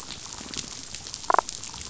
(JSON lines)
{"label": "biophony, damselfish", "recorder": "SoundTrap 500"}
{"label": "biophony", "recorder": "SoundTrap 500"}